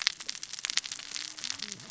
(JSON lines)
{"label": "biophony, cascading saw", "recorder": "SoundTrap 600 or HydroMoth"}